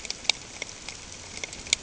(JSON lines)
{"label": "ambient", "recorder": "HydroMoth"}